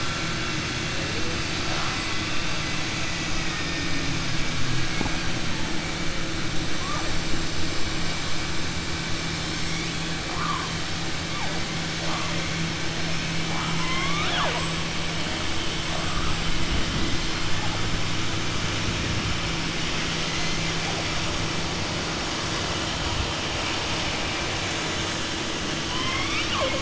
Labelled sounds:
13.4	14.7	killer whale, southern resident, 0.50 to 3.9 kHz

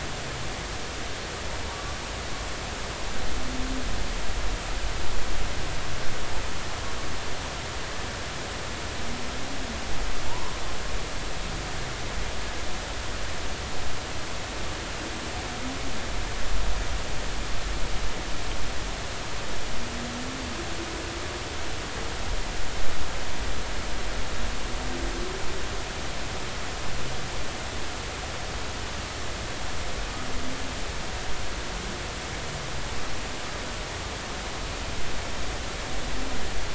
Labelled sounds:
10.3	10.5	humpback whale, 0.86 to 1.1 kHz

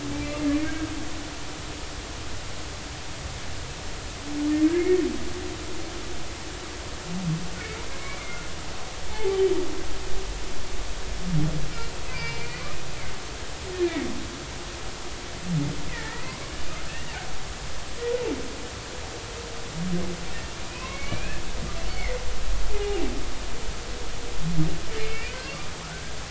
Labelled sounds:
0.2	0.8	humpback whale, 2.0 to 2.8 kHz
4.7	5.0	humpback whale, 2.0 to 2.3 kHz
8.0	8.2	humpback whale, 2.1 to 2.4 kHz
9.1	9.4	humpback whale, 0.80 to 0.93 kHz
12.1	12.6	humpback whale, 2.2 to 4.6 kHz
13.8	14.1	humpback whale, 2.1 to 2.5 kHz
15.9	16.5	humpback whale, 0.99 to 2.7 kHz
16.9	17.1	humpback whale, 1.7 to 2.0 kHz
20.7	21.4	humpback whale, 0.96 to 2.8 kHz
21.9	22.2	humpback whale, 1.9 to 4.5 kHz
22.7	23.0	humpback whale, 0.80 to 0.93 kHz
25.0	26.1	humpback whale, 1.4 to 2.6 kHz

